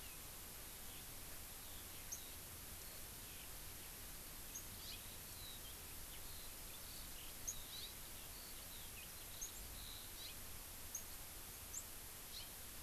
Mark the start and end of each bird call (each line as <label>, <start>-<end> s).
Eurasian Skylark (Alauda arvensis), 0.6-3.7 s
Hawaii Amakihi (Chlorodrepanis virens), 4.8-5.0 s
Eurasian Skylark (Alauda arvensis), 5.2-10.2 s
Hawaii Amakihi (Chlorodrepanis virens), 7.7-8.0 s
Hawaii Amakihi (Chlorodrepanis virens), 10.2-10.4 s
Hawaii Amakihi (Chlorodrepanis virens), 12.4-12.6 s